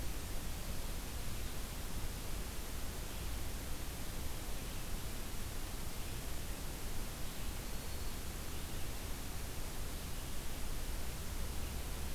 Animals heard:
forest ambience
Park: Marsh-Billings-Rockefeller National Historical Park